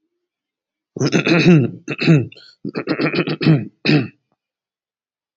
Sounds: Throat clearing